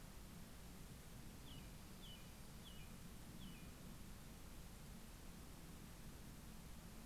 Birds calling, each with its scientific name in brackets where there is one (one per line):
American Robin (Turdus migratorius)